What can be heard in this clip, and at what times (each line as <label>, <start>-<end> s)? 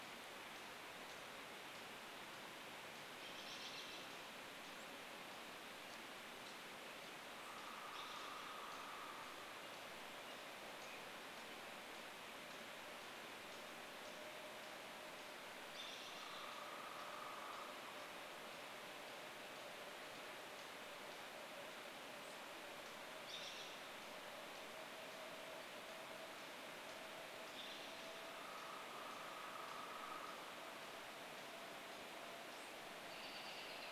unidentified bird chip note, 0-2 s
American Robin call, 2-4 s
unidentified bird chip note, 4-34 s
American Robin call, 6-10 s
woodpecker drumming, 6-10 s
American Robin song, 10-12 s
American Robin call, 14-18 s
woodpecker drumming, 16-18 s
American Robin call, 22-24 s
American Robin call, 26-28 s
woodpecker drumming, 28-32 s
American Robin call, 32-34 s